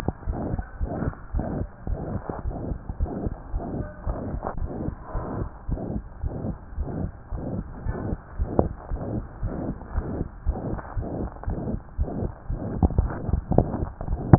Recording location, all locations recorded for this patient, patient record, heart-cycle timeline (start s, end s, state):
tricuspid valve (TV)
aortic valve (AV)+pulmonary valve (PV)+tricuspid valve (TV)+mitral valve (MV)
#Age: Child
#Sex: Male
#Height: 98.0 cm
#Weight: 13.9 kg
#Pregnancy status: False
#Murmur: Present
#Murmur locations: aortic valve (AV)+mitral valve (MV)+pulmonary valve (PV)+tricuspid valve (TV)
#Most audible location: pulmonary valve (PV)
#Systolic murmur timing: Holosystolic
#Systolic murmur shape: Crescendo
#Systolic murmur grading: III/VI or higher
#Systolic murmur pitch: High
#Systolic murmur quality: Harsh
#Diastolic murmur timing: nan
#Diastolic murmur shape: nan
#Diastolic murmur grading: nan
#Diastolic murmur pitch: nan
#Diastolic murmur quality: nan
#Outcome: Abnormal
#Campaign: 2015 screening campaign
0.00	0.78	unannotated
0.78	0.90	S1
0.90	0.98	systole
0.98	1.12	S2
1.12	1.32	diastole
1.32	1.44	S1
1.44	1.56	systole
1.56	1.68	S2
1.68	1.88	diastole
1.88	2.00	S1
2.00	2.10	systole
2.10	2.20	S2
2.20	2.44	diastole
2.44	2.56	S1
2.56	2.68	systole
2.68	2.80	S2
2.80	2.98	diastole
2.98	3.10	S1
3.10	3.20	systole
3.20	3.32	S2
3.32	3.52	diastole
3.52	3.64	S1
3.64	3.74	systole
3.74	3.86	S2
3.86	4.06	diastole
4.06	4.18	S1
4.18	4.32	systole
4.32	4.42	S2
4.42	4.58	diastole
4.58	4.70	S1
4.70	4.80	systole
4.80	4.94	S2
4.94	5.13	diastole
5.13	5.26	S1
5.26	5.36	systole
5.36	5.48	S2
5.48	5.68	diastole
5.68	5.80	S1
5.80	5.90	systole
5.90	6.04	S2
6.04	6.24	diastole
6.24	6.34	S1
6.34	6.42	systole
6.42	6.56	S2
6.56	6.78	diastole
6.78	6.88	S1
6.88	6.98	systole
6.98	7.10	S2
7.10	7.32	diastole
7.32	7.44	S1
7.44	7.52	systole
7.52	7.66	S2
7.66	7.86	diastole
7.86	7.98	S1
7.98	8.06	systole
8.06	8.18	S2
8.18	8.38	diastole
8.38	8.50	S1
8.50	8.58	systole
8.58	8.72	S2
8.72	8.88	diastole
8.88	9.02	S1
9.02	9.12	systole
9.12	9.26	S2
9.26	9.41	diastole
9.41	9.52	S1
9.52	9.62	systole
9.62	9.74	S2
9.74	9.94	diastole
9.94	10.06	S1
10.06	10.14	systole
10.14	10.28	S2
10.28	10.45	diastole
10.45	10.56	S1
10.56	10.69	systole
10.69	10.80	S2
10.80	10.94	diastole
10.94	11.08	S1
11.08	11.18	systole
11.18	11.32	S2
11.32	11.46	diastole
11.46	11.58	S1
11.58	11.68	systole
11.68	11.82	S2
11.82	11.95	diastole
11.95	12.08	S1
12.08	14.38	unannotated